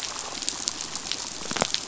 {"label": "biophony", "recorder": "SoundTrap 500"}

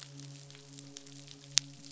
{"label": "biophony, midshipman", "recorder": "SoundTrap 500"}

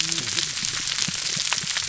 {"label": "biophony, whup", "recorder": "SoundTrap 300"}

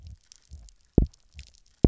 {"label": "biophony, double pulse", "recorder": "SoundTrap 300"}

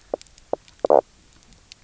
{"label": "biophony, knock croak", "recorder": "SoundTrap 300"}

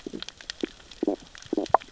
{"label": "biophony, stridulation", "recorder": "SoundTrap 600 or HydroMoth"}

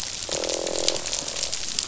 {"label": "biophony, croak", "recorder": "SoundTrap 500"}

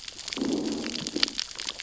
{"label": "biophony, growl", "recorder": "SoundTrap 600 or HydroMoth"}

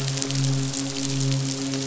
{"label": "biophony, midshipman", "recorder": "SoundTrap 500"}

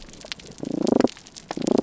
{"label": "biophony, damselfish", "recorder": "SoundTrap 300"}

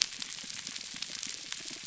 {"label": "biophony", "recorder": "SoundTrap 300"}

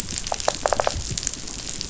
{"label": "biophony", "recorder": "SoundTrap 500"}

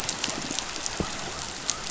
{"label": "biophony", "recorder": "SoundTrap 500"}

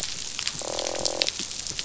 {"label": "biophony, croak", "recorder": "SoundTrap 500"}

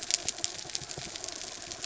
{"label": "biophony", "recorder": "SoundTrap 300"}
{"label": "anthrophony, mechanical", "recorder": "SoundTrap 300"}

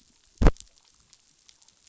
{"label": "biophony", "recorder": "SoundTrap 500"}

